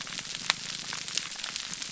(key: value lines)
label: biophony, grouper groan
recorder: SoundTrap 300